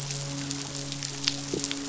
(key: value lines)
label: biophony, midshipman
recorder: SoundTrap 500